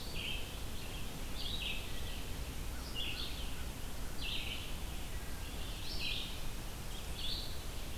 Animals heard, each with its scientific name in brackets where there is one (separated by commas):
Red-eyed Vireo (Vireo olivaceus), American Crow (Corvus brachyrhynchos)